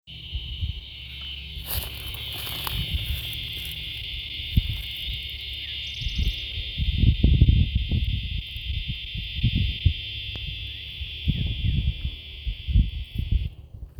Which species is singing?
Diceroprocta grossa